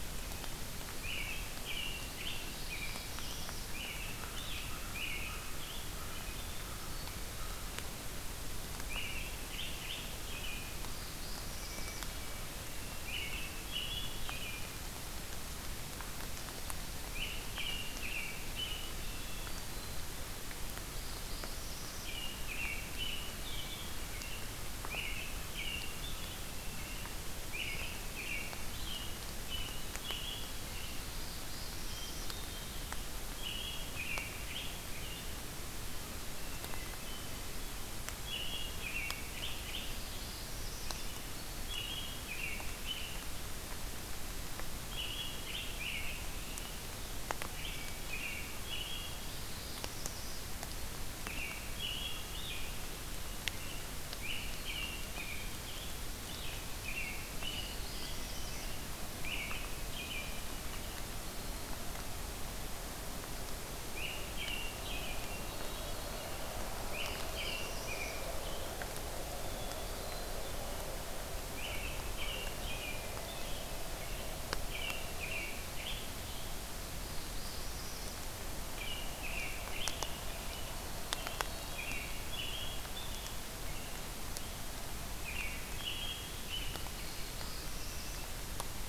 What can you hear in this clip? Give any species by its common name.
American Robin, Black-throated Blue Warbler, American Crow, Hermit Thrush